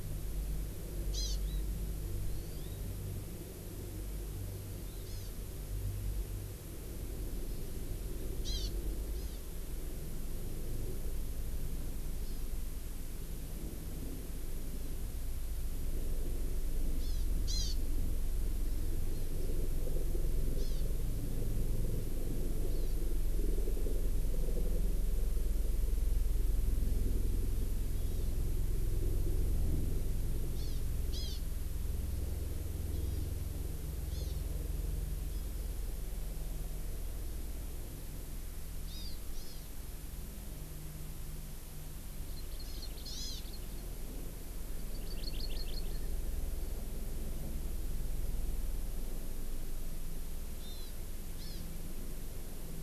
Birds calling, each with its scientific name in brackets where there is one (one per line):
Hawaii Amakihi (Chlorodrepanis virens)